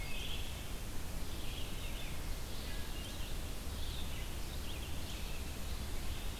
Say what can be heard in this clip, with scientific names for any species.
Hylocichla mustelina, Vireo olivaceus